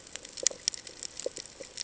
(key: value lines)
label: ambient
recorder: HydroMoth